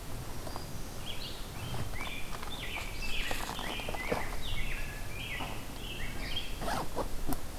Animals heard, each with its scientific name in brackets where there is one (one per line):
Rose-breasted Grosbeak (Pheucticus ludovicianus)
Black-throated Green Warbler (Setophaga virens)